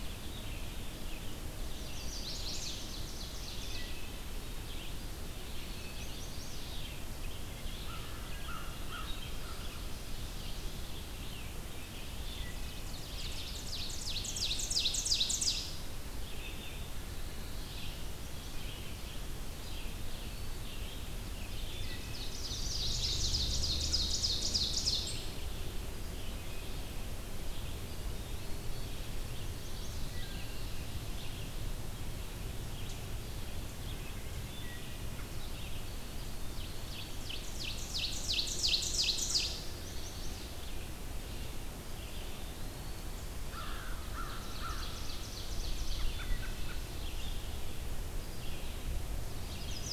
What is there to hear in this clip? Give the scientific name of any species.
Vireo olivaceus, Setophaga pensylvanica, Seiurus aurocapilla, Hylocichla mustelina, Corvus brachyrhynchos, Contopus virens, Turdus migratorius